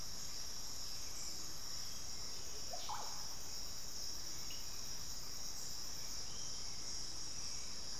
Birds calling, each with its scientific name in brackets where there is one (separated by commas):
Russet-backed Oropendola (Psarocolius angustifrons), Hauxwell's Thrush (Turdus hauxwelli)